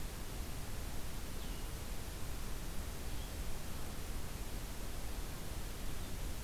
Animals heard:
Red-eyed Vireo (Vireo olivaceus)

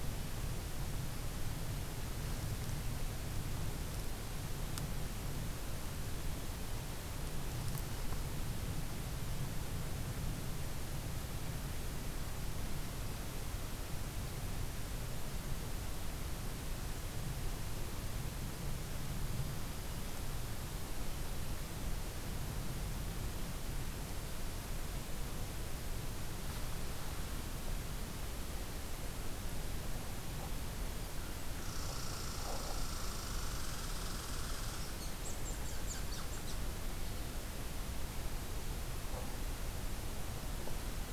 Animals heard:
Red Squirrel (Tamiasciurus hudsonicus)

